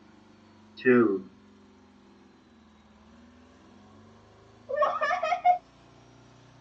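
At 0.77 seconds, someone says "two". Then, at 4.67 seconds, laughter can be heard. A faint, steady noise sits about 30 decibels below the sounds.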